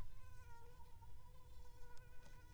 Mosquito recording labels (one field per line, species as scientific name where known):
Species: Aedes aegypti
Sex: female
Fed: unfed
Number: one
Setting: cup